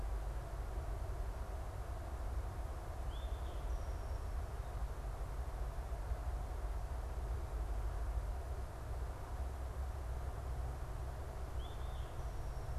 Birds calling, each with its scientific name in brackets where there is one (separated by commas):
Eastern Towhee (Pipilo erythrophthalmus)